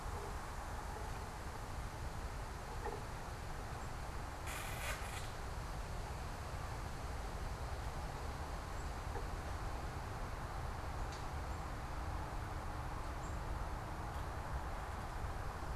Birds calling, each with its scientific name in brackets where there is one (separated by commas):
Black-capped Chickadee (Poecile atricapillus)